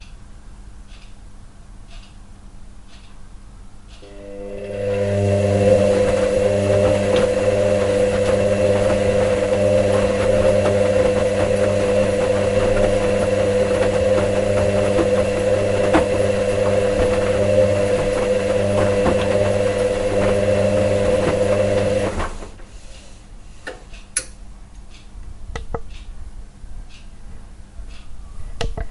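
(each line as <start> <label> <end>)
0.0 An old clock ticks rhythmically. 4.3
4.3 A washing machine is operating. 23.6
23.5 A switch is flicked. 24.5
24.6 An old clock ticks rhythmically. 28.9
25.4 A button is being clicked. 26.1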